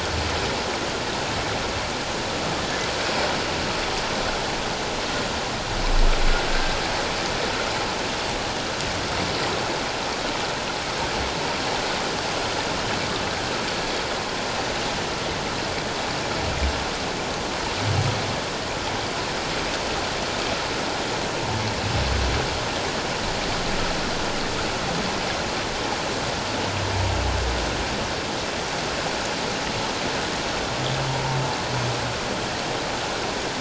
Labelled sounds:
6.5	6.8	humpback whale, 1.5 to 1.6 kHz

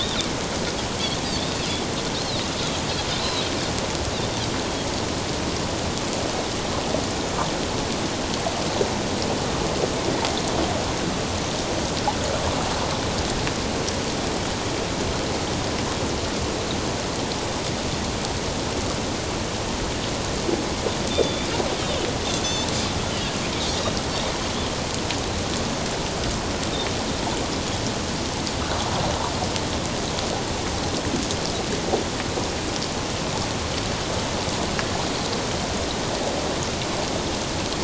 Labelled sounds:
3.2	3.5	Pacific white-sided dolphin, 3.8 to 4.2 kHz
21.1	21.5	Pacific white-sided dolphin, 3.4 to 3.7 kHz
22.4	22.7	Pacific white-sided dolphin, 3.4 to 3.9 kHz

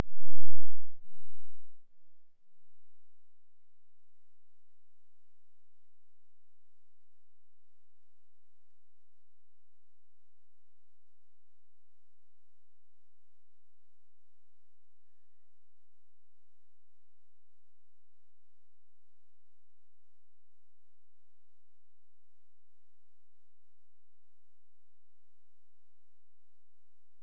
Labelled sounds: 14.8	15.7	killer whale, Bigg's (transient), AT1 transient, 0.49 to 2.3 kHz

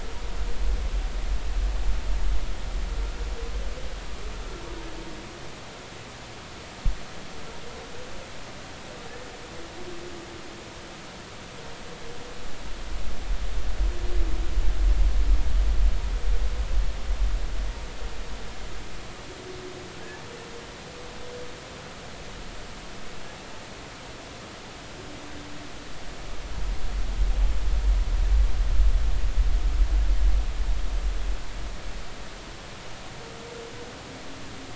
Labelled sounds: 20.0	20.2	humpback whale, 1.4 to 1.8 kHz

